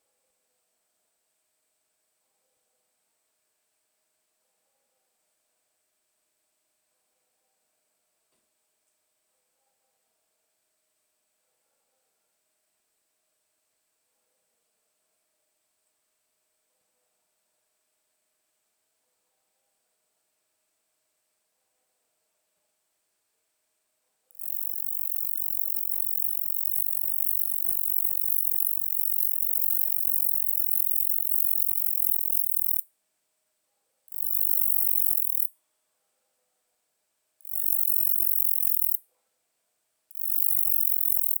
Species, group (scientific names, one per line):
Roeseliana ambitiosa
Orthoptera